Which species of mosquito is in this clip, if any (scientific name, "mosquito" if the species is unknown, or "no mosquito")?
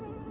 Anopheles albimanus